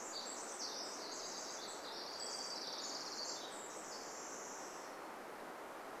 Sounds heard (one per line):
Pacific Wren song
Orange-crowned Warbler song
Hermit Thrush song